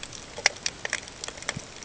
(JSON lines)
{"label": "ambient", "recorder": "HydroMoth"}